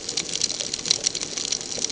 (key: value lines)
label: ambient
recorder: HydroMoth